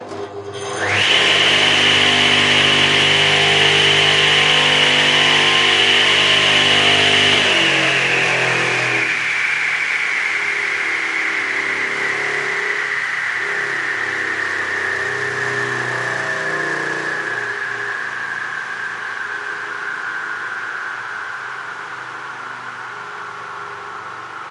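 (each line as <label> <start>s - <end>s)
Electric saws whirring and cutting at a workshop or construction site. 0.7s - 22.2s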